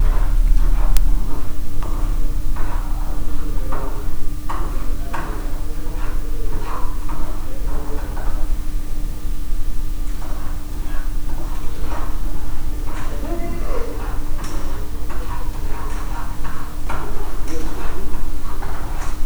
Is there ball bouncing?
no